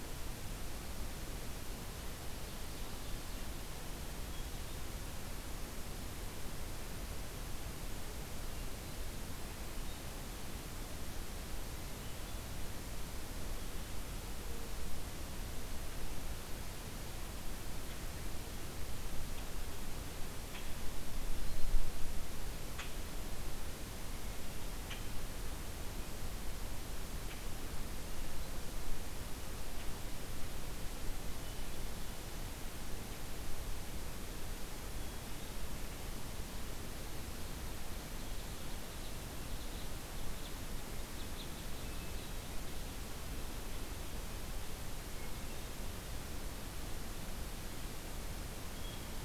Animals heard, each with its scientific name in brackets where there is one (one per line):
unknown mammal
Red Crossbill (Loxia curvirostra)
Ovenbird (Seiurus aurocapilla)
Hermit Thrush (Catharus guttatus)